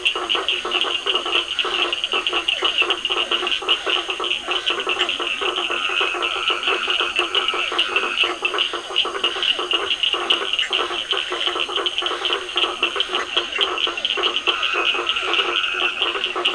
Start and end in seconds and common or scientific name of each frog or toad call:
0.0	16.5	blacksmith tree frog
0.0	16.5	Physalaemus cuvieri
0.0	16.5	Scinax perereca
0.0	16.5	Cochran's lime tree frog
5.8	8.4	Dendropsophus nahdereri
10.6	10.8	Bischoff's tree frog
14.3	16.5	Dendropsophus nahdereri